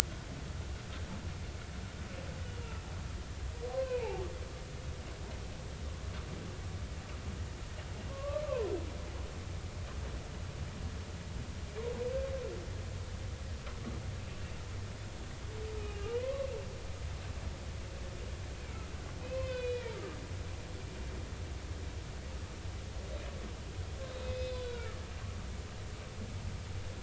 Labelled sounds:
3.7	4.2	humpback whale, 0.80 to 2.8 kHz
8.1	8.4	humpback whale, 1.0 to 1.2 kHz
15.8	16.5	humpback whale, 0.93 to 3.0 kHz
19.2	20.2	humpback whale, 0.96 to 4.1 kHz
24.0	25.0	humpback whale, 1.2 to 5.2 kHz

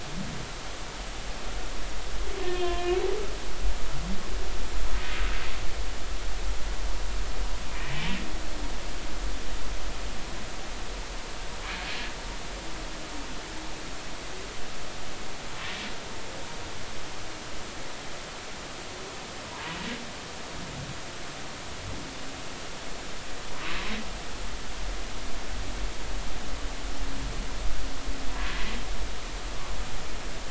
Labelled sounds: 2.5	3.0	humpback whale, 1.7 to 3.6 kHz
7.7	7.9	humpback whale, 2.3 to 2.6 kHz
19.5	19.8	humpback whale, 0.86 to 1.1 kHz

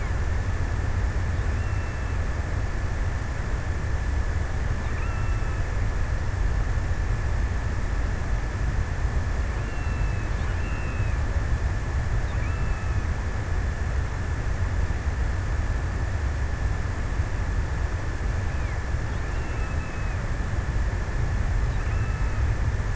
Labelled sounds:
1.1	2.6	killer whale, offshore, 0.91 to 3.2 kHz
4.6	6.5	killer whale, offshore, 0.81 to 3.1 kHz
9.0	11.6	killer whale, offshore, 0.57 to 3.1 kHz
12.1	13.2	killer whale, offshore, 0.86 to 3.1 kHz
18.9	20.4	killer whale, offshore, 0.76 to 3.2 kHz
21.6	22.9	killer whale, offshore, 0.84 to 3.5 kHz

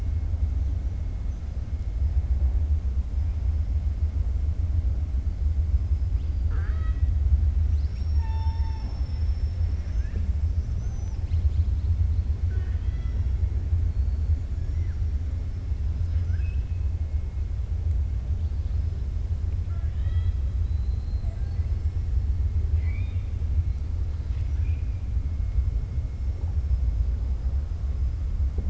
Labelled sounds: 6.4	7.1	killer whale, 0.44 to 4.7 kHz
10.5	11.9	killer whale, 2.5 to 6.2 kHz
12.4	13.2	killer whale, 0.40 to 4.0 kHz
15.9	16.8	killer whale, 1.4 to 5.9 kHz
19.6	22.1	killer whale, 0.62 to 5.7 kHz
22.7	23.3	killer whale, 1.1 to 4.8 kHz
24.0	24.6	killer whale, 1.1 to 5.9 kHz

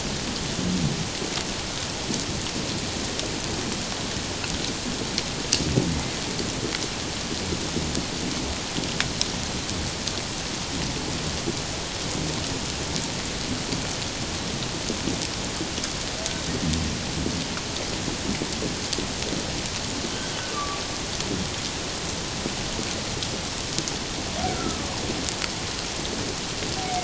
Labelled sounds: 20.1	20.8	humpback whale, 1.1 to 3.3 kHz
24.5	24.8	humpback whale, 1.2 to 1.5 kHz

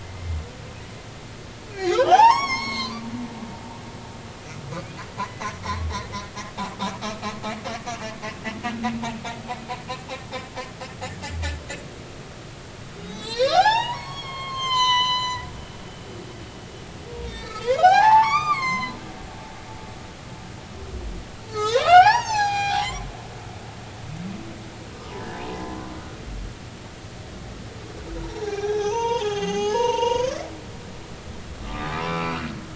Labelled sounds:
1.7	2.9	humpback whale, 0.80 to 7.7 kHz
5.2	5.5	humpback whale, 1.9 to 2.1 kHz
7.0	7.2	humpback whale, 1.2 to 1.3 kHz
7.9	8.1	humpback whale, 2.5 to 2.9 kHz
12.9	15.5	humpback whale, 0.80 to 7.5 kHz
17.3	19.9	humpback whale, 0.80 to 7.8 kHz
21.5	23.1	humpback whale, 0.80 to 7.6 kHz
25.4	25.8	humpback whale, 0.90 to 1.1 kHz
28.2	30.9	humpback whale, 0.80 to 6.7 kHz
31.6	32.5	humpback whale, 0.99 to 2.8 kHz

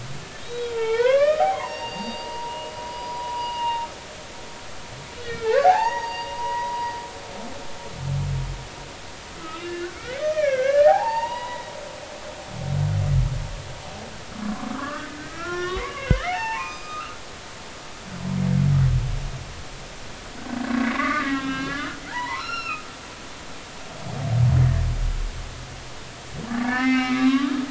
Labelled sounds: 0.4	3.9	humpback whale, 0.80 to 4.9 kHz
5.2	6.9	humpback whale, 0.80 to 6.7 kHz
9.4	11.7	humpback whale, 0.80 to 5.0 kHz
14.4	17.4	humpback whale, 0.80 to 6.2 kHz
20.8	23.0	humpback whale, 0.80 to 5.6 kHz
24.6	24.8	humpback whale, 1.6 to 1.9 kHz
26.6	27.5	humpback whale, 0.80 to 4.0 kHz

